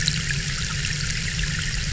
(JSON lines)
{"label": "anthrophony, boat engine", "recorder": "SoundTrap 300"}